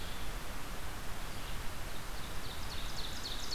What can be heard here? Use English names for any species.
Red-eyed Vireo, Ovenbird